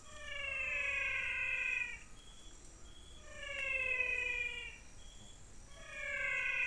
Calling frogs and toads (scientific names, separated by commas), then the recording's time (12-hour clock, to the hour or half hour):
Physalaemus albonotatus
~6pm